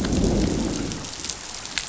{"label": "biophony, growl", "recorder": "SoundTrap 500"}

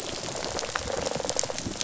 {"label": "biophony, rattle response", "recorder": "SoundTrap 500"}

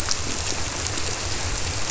{"label": "biophony", "recorder": "SoundTrap 300"}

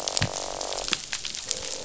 {"label": "biophony, croak", "recorder": "SoundTrap 500"}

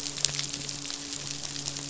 {"label": "biophony, midshipman", "recorder": "SoundTrap 500"}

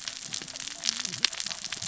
{"label": "biophony, cascading saw", "recorder": "SoundTrap 600 or HydroMoth"}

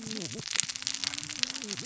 {"label": "biophony, cascading saw", "recorder": "SoundTrap 600 or HydroMoth"}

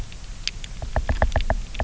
{"label": "biophony, knock", "recorder": "SoundTrap 300"}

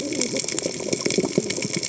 {"label": "biophony, cascading saw", "recorder": "HydroMoth"}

